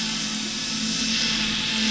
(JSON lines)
{"label": "anthrophony, boat engine", "recorder": "SoundTrap 500"}